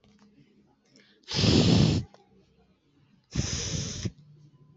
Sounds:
Sniff